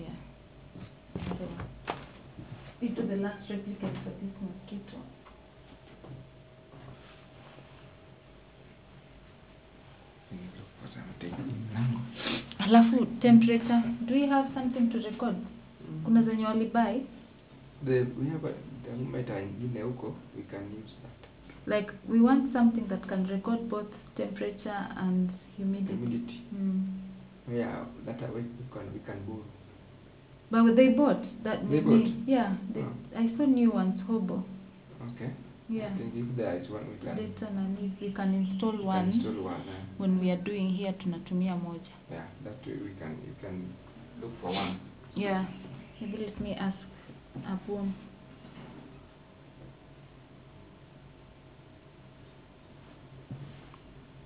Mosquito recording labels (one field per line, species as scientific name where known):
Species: no mosquito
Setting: insect culture